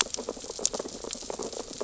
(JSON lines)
{"label": "biophony, sea urchins (Echinidae)", "recorder": "SoundTrap 600 or HydroMoth"}